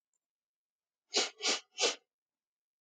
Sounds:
Sniff